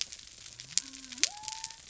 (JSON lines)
{"label": "biophony", "recorder": "SoundTrap 300"}